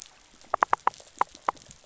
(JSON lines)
{"label": "biophony, rattle", "recorder": "SoundTrap 500"}